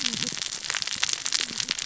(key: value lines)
label: biophony, cascading saw
recorder: SoundTrap 600 or HydroMoth